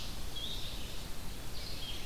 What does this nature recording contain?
Red-eyed Vireo